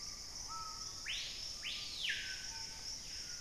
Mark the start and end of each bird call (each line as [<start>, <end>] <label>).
[0.00, 1.42] unidentified bird
[0.00, 3.40] Screaming Piha (Lipaugus vociferans)